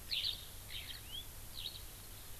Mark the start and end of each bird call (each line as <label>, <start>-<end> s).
Eurasian Skylark (Alauda arvensis), 0.0-0.4 s
Eurasian Skylark (Alauda arvensis), 0.7-0.9 s
House Finch (Haemorhous mexicanus), 0.9-1.2 s
Eurasian Skylark (Alauda arvensis), 1.5-1.8 s